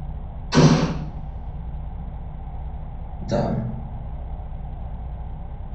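At the start, an explosion can be heard. After that, about 3 seconds in, someone says "down". A steady noise lies about 15 dB below the sounds.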